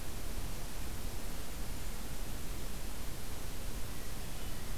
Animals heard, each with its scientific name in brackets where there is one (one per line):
Hermit Thrush (Catharus guttatus)